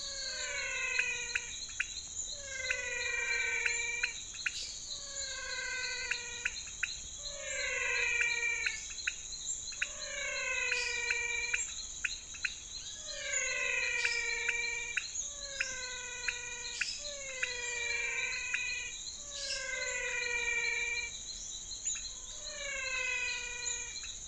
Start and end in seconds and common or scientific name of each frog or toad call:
0.0	24.2	menwig frog
0.9	24.2	pointedbelly frog
4.3	5.0	lesser tree frog
10.6	11.2	lesser tree frog
13.9	14.5	lesser tree frog
16.7	17.3	lesser tree frog
19.3	20.0	lesser tree frog